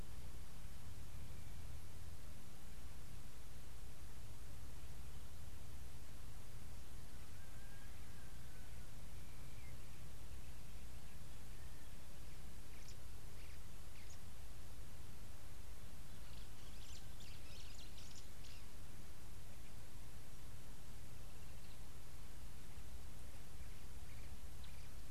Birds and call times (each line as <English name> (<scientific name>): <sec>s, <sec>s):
White-browed Sparrow-Weaver (Plocepasser mahali): 17.6s